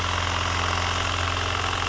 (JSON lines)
{"label": "anthrophony, boat engine", "recorder": "SoundTrap 300"}